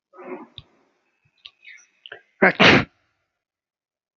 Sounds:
Sneeze